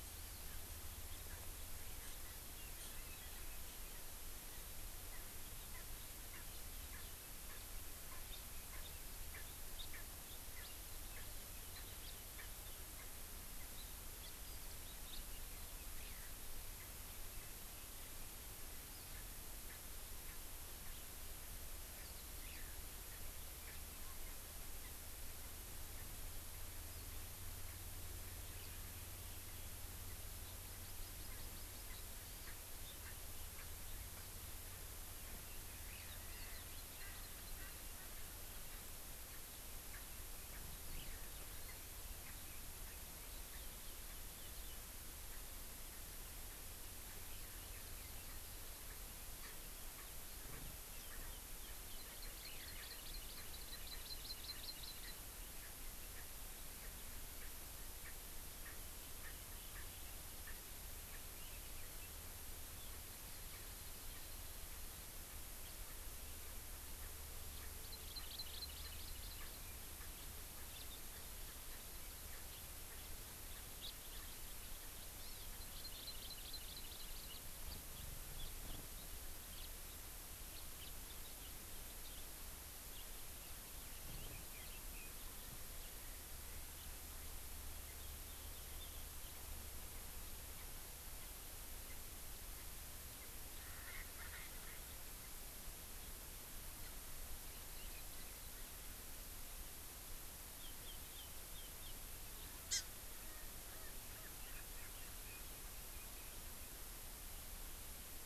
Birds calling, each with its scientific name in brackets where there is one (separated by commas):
Red-billed Leiothrix (Leiothrix lutea), Erckel's Francolin (Pternistis erckelii), Hawaii Amakihi (Chlorodrepanis virens)